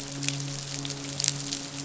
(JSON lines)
{"label": "biophony, midshipman", "recorder": "SoundTrap 500"}